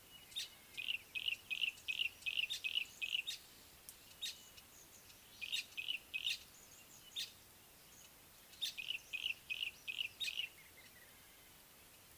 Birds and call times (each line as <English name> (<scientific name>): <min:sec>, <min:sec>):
Yellow-breasted Apalis (Apalis flavida): 0:02.1, 0:05.8, 0:09.6
Village Weaver (Ploceus cucullatus): 0:07.2